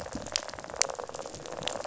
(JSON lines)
{"label": "biophony, rattle", "recorder": "SoundTrap 500"}